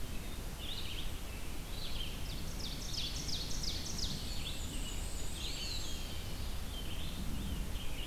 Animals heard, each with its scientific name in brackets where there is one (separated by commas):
Red-eyed Vireo (Vireo olivaceus), Eastern Wood-Pewee (Contopus virens), Black-and-white Warbler (Mniotilta varia), Ovenbird (Seiurus aurocapilla)